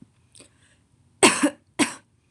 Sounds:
Cough